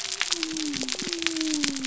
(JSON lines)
{"label": "biophony", "recorder": "SoundTrap 300"}